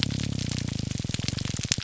{"label": "biophony, grouper groan", "recorder": "SoundTrap 300"}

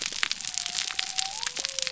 {"label": "biophony", "recorder": "SoundTrap 300"}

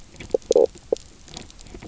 {"label": "biophony, knock croak", "recorder": "SoundTrap 300"}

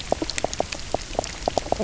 {"label": "biophony, knock croak", "recorder": "SoundTrap 300"}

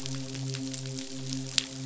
{"label": "biophony, midshipman", "recorder": "SoundTrap 500"}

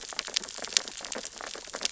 {"label": "biophony, sea urchins (Echinidae)", "recorder": "SoundTrap 600 or HydroMoth"}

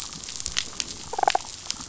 {"label": "biophony, damselfish", "recorder": "SoundTrap 500"}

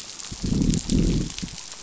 {"label": "biophony, growl", "recorder": "SoundTrap 500"}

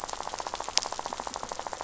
{"label": "biophony, rattle", "recorder": "SoundTrap 500"}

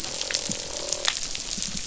{"label": "biophony, croak", "recorder": "SoundTrap 500"}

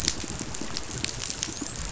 {"label": "biophony, dolphin", "recorder": "SoundTrap 500"}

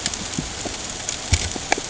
{"label": "ambient", "recorder": "HydroMoth"}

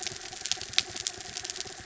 {"label": "anthrophony, mechanical", "recorder": "SoundTrap 300"}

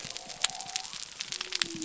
{"label": "biophony", "recorder": "SoundTrap 300"}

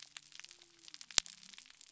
{"label": "biophony", "recorder": "SoundTrap 300"}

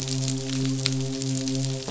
{"label": "biophony, midshipman", "recorder": "SoundTrap 500"}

